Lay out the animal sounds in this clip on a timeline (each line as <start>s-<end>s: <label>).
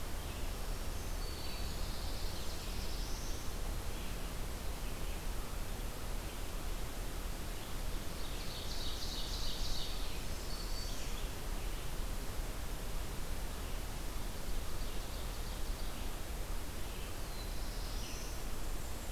0.0s-19.1s: Red-eyed Vireo (Vireo olivaceus)
0.4s-2.0s: Black-throated Green Warbler (Setophaga virens)
1.2s-3.7s: Black-throated Blue Warbler (Setophaga caerulescens)
7.9s-10.1s: Ovenbird (Seiurus aurocapilla)
10.2s-11.3s: Black-throated Green Warbler (Setophaga virens)
14.4s-16.3s: Ovenbird (Seiurus aurocapilla)
16.9s-18.6s: Black-throated Blue Warbler (Setophaga caerulescens)
18.1s-19.1s: Black-and-white Warbler (Mniotilta varia)